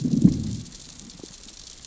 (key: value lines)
label: biophony, growl
recorder: SoundTrap 600 or HydroMoth